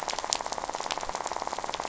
{"label": "biophony, rattle", "recorder": "SoundTrap 500"}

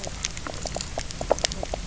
{"label": "biophony, knock croak", "recorder": "SoundTrap 300"}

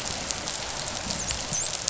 {"label": "biophony, dolphin", "recorder": "SoundTrap 500"}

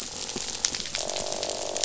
{"label": "biophony, croak", "recorder": "SoundTrap 500"}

